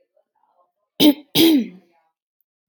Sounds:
Throat clearing